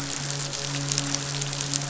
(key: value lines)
label: biophony, midshipman
recorder: SoundTrap 500